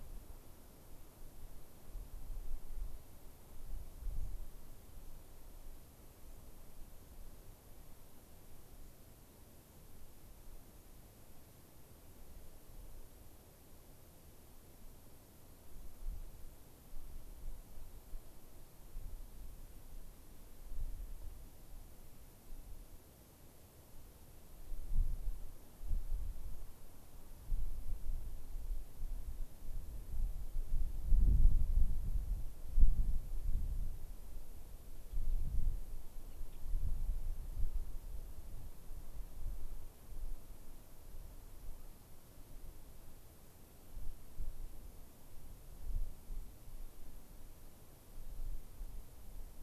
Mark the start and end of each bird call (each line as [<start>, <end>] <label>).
[4.18, 4.28] White-crowned Sparrow (Zonotrichia leucophrys)
[33.48, 33.98] Gray-crowned Rosy-Finch (Leucosticte tephrocotis)
[35.08, 35.38] Gray-crowned Rosy-Finch (Leucosticte tephrocotis)
[36.18, 36.58] Gray-crowned Rosy-Finch (Leucosticte tephrocotis)